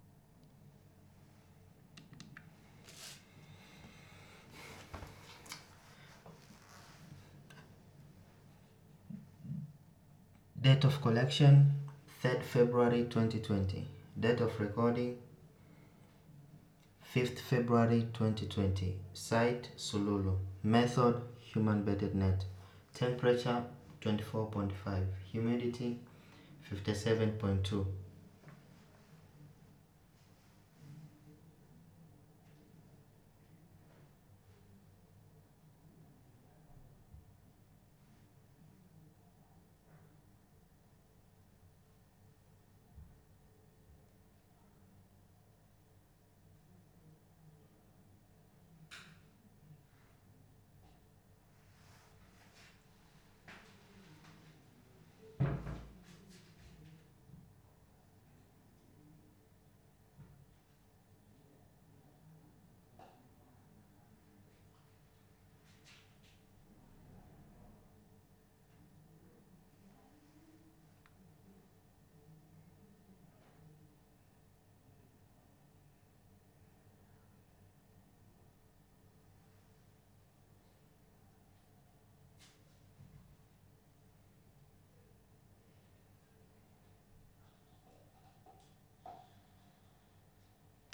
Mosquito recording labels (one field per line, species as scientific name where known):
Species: no mosquito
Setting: cup